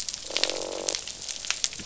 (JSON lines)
{"label": "biophony, croak", "recorder": "SoundTrap 500"}